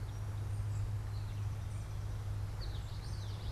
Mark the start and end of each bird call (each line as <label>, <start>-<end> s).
American Goldfinch (Spinus tristis), 0.0-3.5 s
unidentified bird, 0.0-3.5 s
Common Yellowthroat (Geothlypis trichas), 2.4-3.5 s